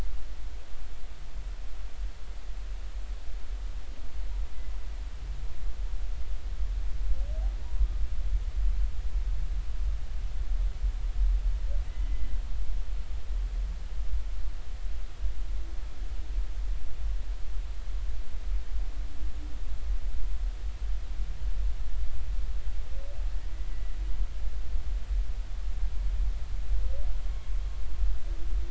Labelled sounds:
7.6	7.9	humpback whale, 0.86 to 1.1 kHz
11.9	12.3	humpback whale, 1.8 to 2.1 kHz

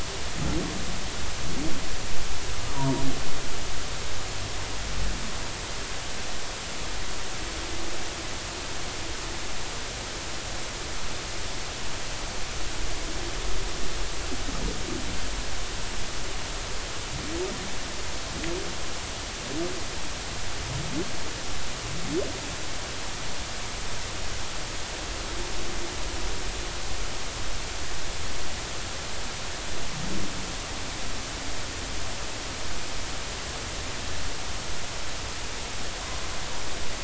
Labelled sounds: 2.7	3.0	humpback whale, 0.90 to 1.1 kHz

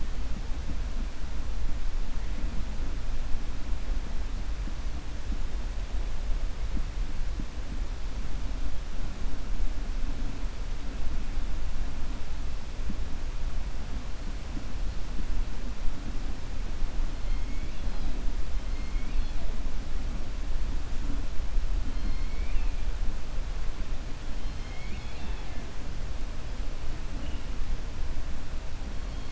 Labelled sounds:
17.2	18.1	killer whale, 2.1 to 5.0 kHz
18.7	19.4	killer whale, 2.1 to 4.4 kHz
24.4	25.6	killer whale, 0.39 to 5.1 kHz

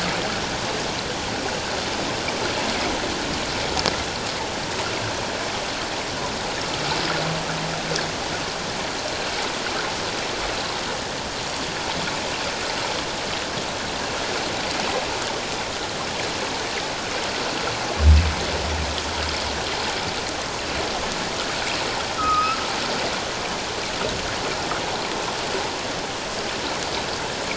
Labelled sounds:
22.2	22.6	humpback whale, 1.2 to 2.7 kHz

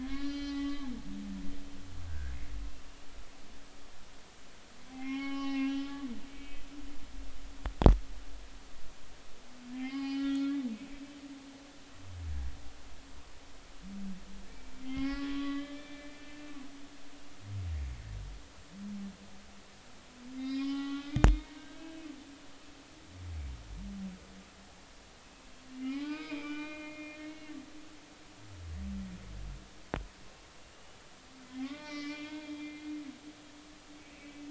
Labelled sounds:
0.0	2.3	humpback whale, 1.0 to 6.0 kHz
4.9	6.7	humpback whale, 0.80 to 5.8 kHz
9.7	10.6	humpback whale, 0.80 to 5.0 kHz
14.8	16.6	humpback whale, 0.80 to 3.6 kHz
20.3	22.0	humpback whale, 0.80 to 5.3 kHz
25.8	27.5	humpback whale, 0.80 to 5.2 kHz
31.5	32.9	humpback whale, 1.1 to 3.4 kHz
34.0	34.4	humpback whale, 2.4 to 2.7 kHz

